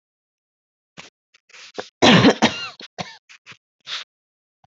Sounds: Cough